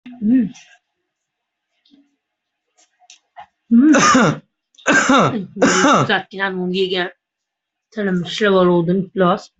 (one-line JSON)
{"expert_labels": [{"quality": "ok", "cough_type": "unknown", "dyspnea": false, "wheezing": false, "stridor": false, "choking": false, "congestion": false, "nothing": true, "diagnosis": "healthy cough", "severity": "pseudocough/healthy cough"}], "age": 19, "gender": "male", "respiratory_condition": false, "fever_muscle_pain": false, "status": "healthy"}